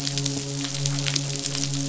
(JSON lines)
{"label": "biophony, midshipman", "recorder": "SoundTrap 500"}